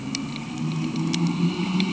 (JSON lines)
{"label": "anthrophony, boat engine", "recorder": "HydroMoth"}